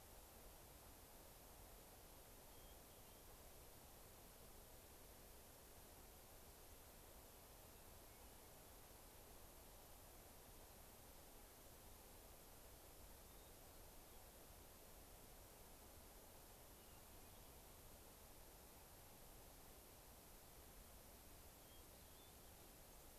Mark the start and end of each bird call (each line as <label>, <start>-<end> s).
Hermit Thrush (Catharus guttatus), 2.4-3.2 s
Hermit Thrush (Catharus guttatus), 13.1-14.3 s
Hermit Thrush (Catharus guttatus), 16.7-17.6 s
Hermit Thrush (Catharus guttatus), 21.5-22.5 s
Dark-eyed Junco (Junco hyemalis), 22.8-23.1 s